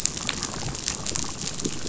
{"label": "biophony, chatter", "recorder": "SoundTrap 500"}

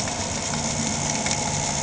{"label": "anthrophony, boat engine", "recorder": "HydroMoth"}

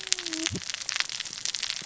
{"label": "biophony, cascading saw", "recorder": "SoundTrap 600 or HydroMoth"}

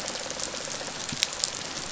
{"label": "biophony, rattle response", "recorder": "SoundTrap 500"}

